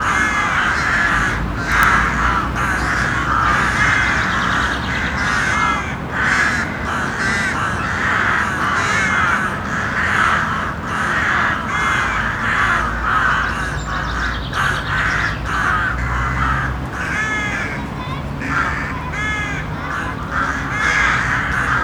Are these birds?
yes